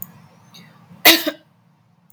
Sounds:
Laughter